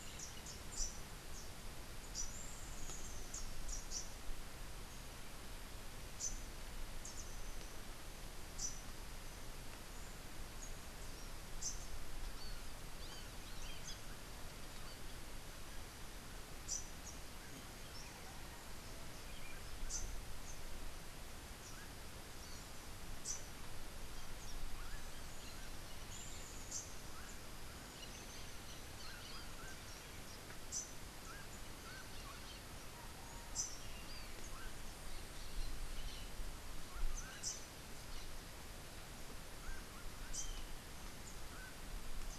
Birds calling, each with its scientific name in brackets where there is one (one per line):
Montezuma Oropendola (Psarocolius montezuma)
Rufous-capped Warbler (Basileuterus rufifrons)